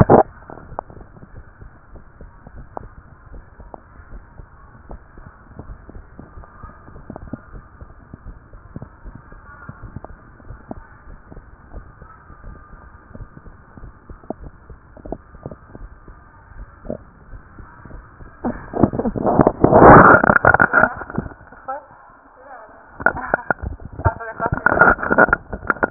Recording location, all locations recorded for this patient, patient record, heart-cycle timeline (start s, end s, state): tricuspid valve (TV)
aortic valve (AV)+pulmonary valve (PV)+tricuspid valve (TV)+mitral valve (MV)
#Age: nan
#Sex: Female
#Height: nan
#Weight: nan
#Pregnancy status: True
#Murmur: Absent
#Murmur locations: nan
#Most audible location: nan
#Systolic murmur timing: nan
#Systolic murmur shape: nan
#Systolic murmur grading: nan
#Systolic murmur pitch: nan
#Systolic murmur quality: nan
#Diastolic murmur timing: nan
#Diastolic murmur shape: nan
#Diastolic murmur grading: nan
#Diastolic murmur pitch: nan
#Diastolic murmur quality: nan
#Outcome: Normal
#Campaign: 2015 screening campaign
0.00	1.17	unannotated
1.17	1.32	diastole
1.32	1.44	S1
1.44	1.59	systole
1.59	1.73	S2
1.73	1.90	diastole
1.90	2.04	S1
2.04	2.19	systole
2.19	2.32	S2
2.32	2.52	diastole
2.52	2.66	S1
2.66	2.80	systole
2.80	2.92	S2
2.92	3.29	diastole
3.29	3.44	S1
3.44	3.60	systole
3.60	3.74	S2
3.74	4.08	diastole
4.08	4.24	S1
4.24	4.34	systole
4.34	4.46	S2
4.46	4.88	diastole
4.88	5.02	S1
5.02	5.17	systole
5.17	5.30	S2
5.30	5.66	diastole
5.66	5.78	S1
5.78	5.94	systole
5.94	6.06	S2
6.06	6.34	diastole
6.34	6.46	S1
6.46	6.62	systole
6.62	6.74	S2
6.74	6.92	diastole
6.92	7.04	S1
7.04	7.20	systole
7.20	7.34	S2
7.34	7.52	diastole
7.52	7.66	S1
7.66	7.80	systole
7.80	7.90	S2
7.90	8.26	diastole
8.26	8.38	S1
8.38	8.52	systole
8.52	8.62	S2
8.62	9.04	diastole
9.04	9.16	S1
9.16	9.31	systole
9.31	9.42	S2
9.42	9.67	diastole
9.67	25.90	unannotated